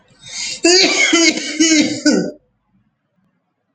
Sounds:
Cough